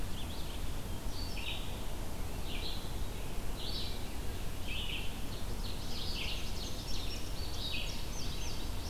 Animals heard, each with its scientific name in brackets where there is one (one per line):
Ovenbird (Seiurus aurocapilla)
Indigo Bunting (Passerina cyanea)
Red-eyed Vireo (Vireo olivaceus)